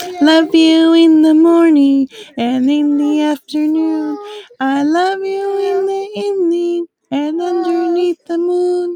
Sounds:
Sigh